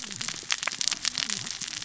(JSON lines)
{"label": "biophony, cascading saw", "recorder": "SoundTrap 600 or HydroMoth"}